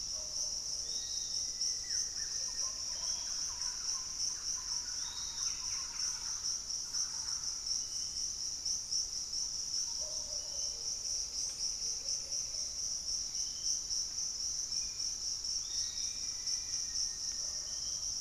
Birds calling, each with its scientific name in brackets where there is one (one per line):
Thrush-like Wren (Campylorhynchus turdinus)
Black-faced Antthrush (Formicarius analis)
Ringed Woodpecker (Celeus torquatus)
Piratic Flycatcher (Legatus leucophaius)
Buff-throated Woodcreeper (Xiphorhynchus guttatus)
unidentified bird
Pygmy Antwren (Myrmotherula brachyura)